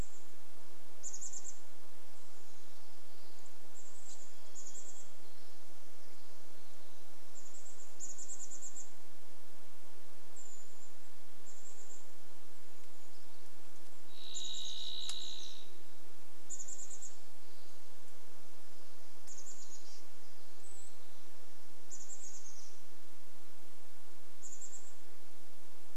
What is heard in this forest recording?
Chestnut-backed Chickadee call, insect buzz, Varied Thrush song, Brown Creeper call, Brown Creeper song